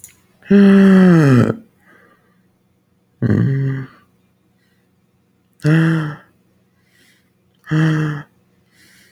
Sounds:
Sigh